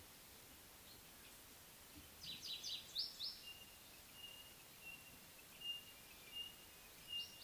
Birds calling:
African Pied Wagtail (Motacilla aguimp), White-browed Robin-Chat (Cossypha heuglini)

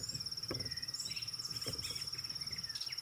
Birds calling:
White-rumped Shrike (Eurocephalus ruppelli)

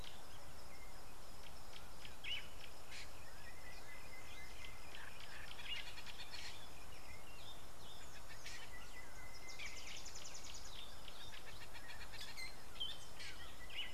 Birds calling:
Fork-tailed Drongo (Dicrurus adsimilis), Northern Brownbul (Phyllastrephus strepitans), Sulphur-breasted Bushshrike (Telophorus sulfureopectus), Variable Sunbird (Cinnyris venustus)

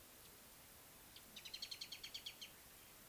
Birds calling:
Mariqua Sunbird (Cinnyris mariquensis)

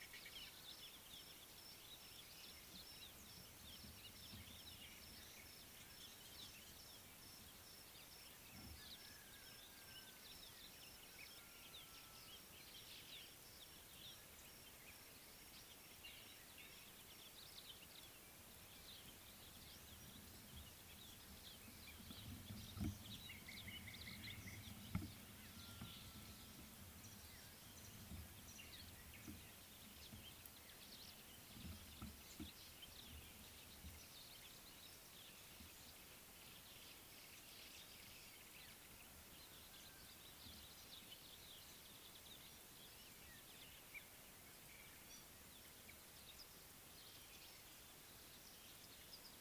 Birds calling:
Slate-colored Boubou (Laniarius funebris)

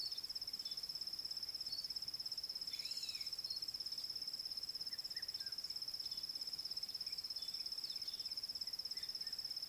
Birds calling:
African Black-headed Oriole (Oriolus larvatus)

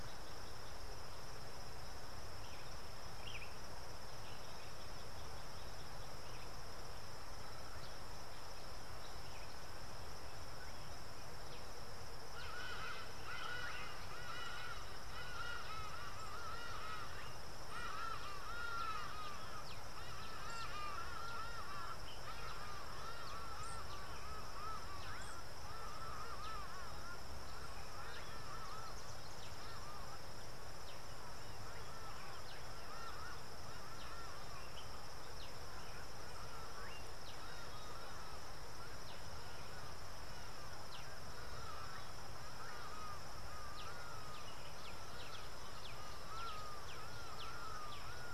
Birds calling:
Hadada Ibis (Bostrychia hagedash)

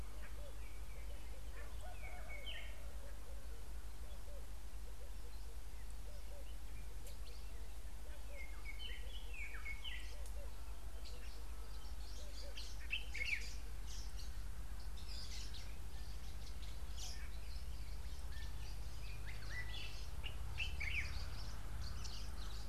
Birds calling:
Fischer's Lovebird (Agapornis fischeri), White-browed Robin-Chat (Cossypha heuglini), Common Bulbul (Pycnonotus barbatus)

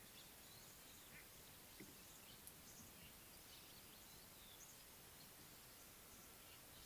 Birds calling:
Speckle-fronted Weaver (Sporopipes frontalis)

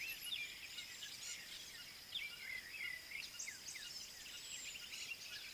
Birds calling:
Gray-backed Camaroptera (Camaroptera brevicaudata), African Bare-eyed Thrush (Turdus tephronotus)

